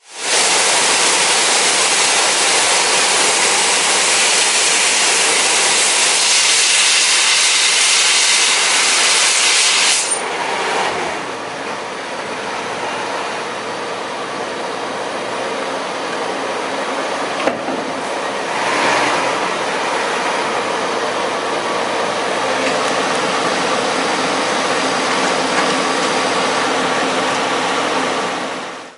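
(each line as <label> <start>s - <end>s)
Air is being released from a compressor. 0.0s - 11.5s
A machine is making a ventilation sound. 11.5s - 29.0s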